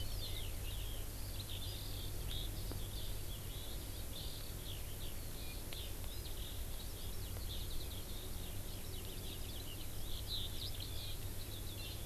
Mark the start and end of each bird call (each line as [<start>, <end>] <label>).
[0.00, 12.05] Eurasian Skylark (Alauda arvensis)